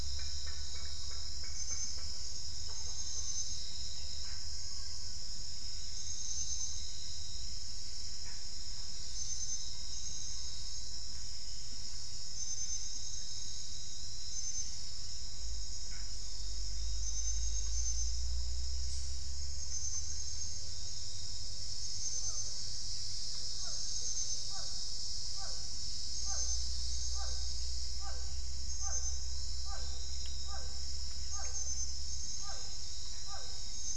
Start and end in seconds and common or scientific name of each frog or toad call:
4.2	4.5	Pithecopus azureus
8.2	8.5	Pithecopus azureus
15.8	16.1	Pithecopus azureus
23.6	33.9	Physalaemus cuvieri